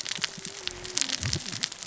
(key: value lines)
label: biophony, cascading saw
recorder: SoundTrap 600 or HydroMoth